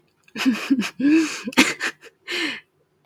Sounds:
Laughter